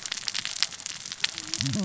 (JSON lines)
{"label": "biophony, cascading saw", "recorder": "SoundTrap 600 or HydroMoth"}